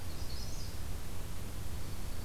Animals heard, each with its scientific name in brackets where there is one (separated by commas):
Dark-eyed Junco (Junco hyemalis), Magnolia Warbler (Setophaga magnolia)